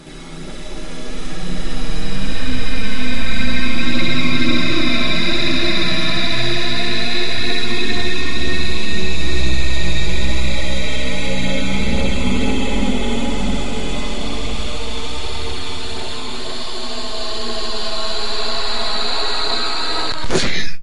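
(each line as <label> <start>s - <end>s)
A slowed-down human voice building up to a sneeze. 0.0s - 20.3s
A person sneezes loudly. 20.3s - 20.8s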